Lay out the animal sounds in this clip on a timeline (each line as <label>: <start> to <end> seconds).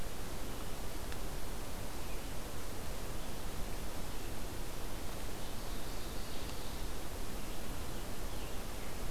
Ovenbird (Seiurus aurocapilla): 5.3 to 7.0 seconds